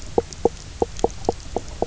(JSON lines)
{"label": "biophony, knock croak", "recorder": "SoundTrap 300"}